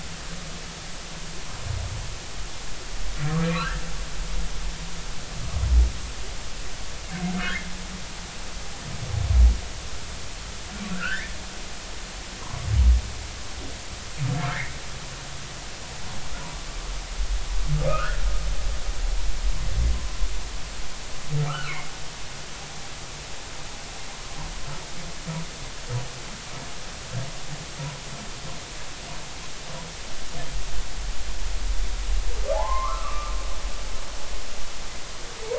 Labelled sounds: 3.4	3.8	humpback whale, 1.2 to 2.8 kHz
7.4	7.7	humpback whale, 1.1 to 1.9 kHz
10.9	11.3	humpback whale, 1.3 to 2.4 kHz
14.5	14.7	humpback whale, 1.5 to 2.3 kHz
18.9	19.2	humpback whale, 1.2 to 1.9 kHz
21.5	21.7	humpback whale, 1.1 to 1.5 kHz
32.5	33.3	humpback whale, 0.80 to 2.2 kHz

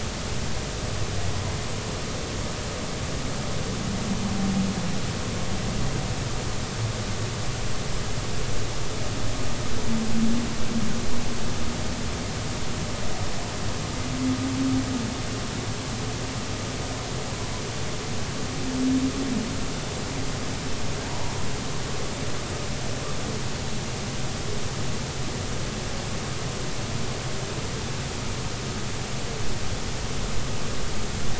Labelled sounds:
21.0	21.4	humpback whale, 0.80 to 1.0 kHz

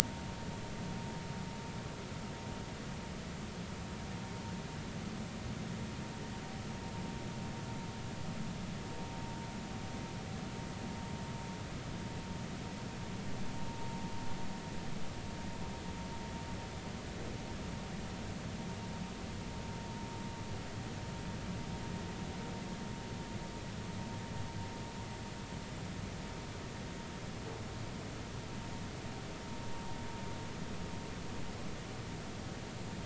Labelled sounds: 0.0	0.3	vessel noise, 0.86 to 0.99 kHz

